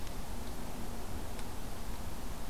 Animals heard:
forest ambience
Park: Acadia National Park